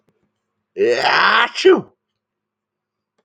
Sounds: Sneeze